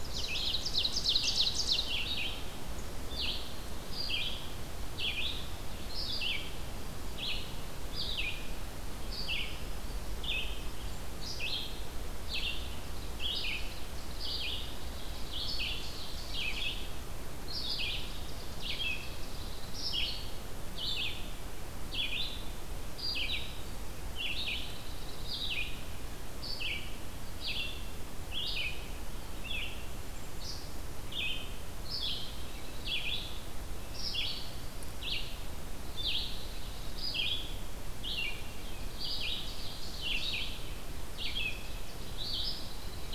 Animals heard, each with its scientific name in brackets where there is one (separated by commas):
Ovenbird (Seiurus aurocapilla), Red-eyed Vireo (Vireo olivaceus), Dark-eyed Junco (Junco hyemalis)